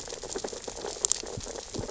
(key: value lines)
label: biophony, sea urchins (Echinidae)
recorder: SoundTrap 600 or HydroMoth